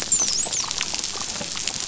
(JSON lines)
{"label": "biophony, dolphin", "recorder": "SoundTrap 500"}